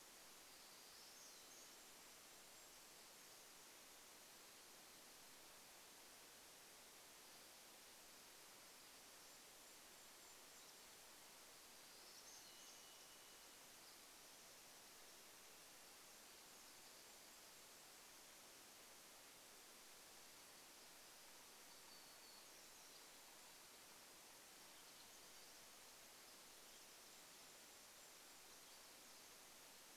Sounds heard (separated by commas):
Golden-crowned Kinglet song, Varied Thrush song, warbler song